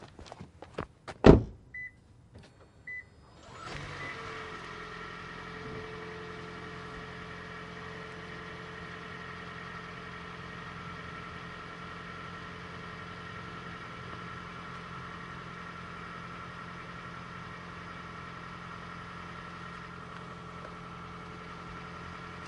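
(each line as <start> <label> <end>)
0.0 Footsteps on pavement. 1.2
1.2 Car door closing. 1.5
1.5 Beeping sounds repeating with pauses. 4.4
3.5 An engine is running. 22.5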